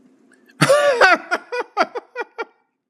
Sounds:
Laughter